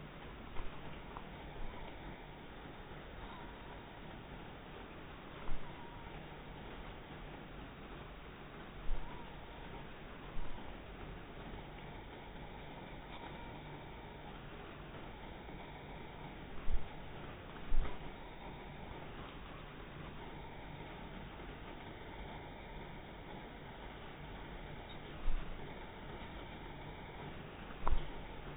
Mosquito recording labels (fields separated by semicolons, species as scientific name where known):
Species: mosquito; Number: one; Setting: cup